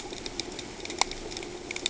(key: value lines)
label: ambient
recorder: HydroMoth